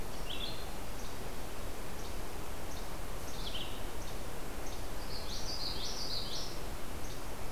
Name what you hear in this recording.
Blue-headed Vireo, Least Flycatcher, Common Yellowthroat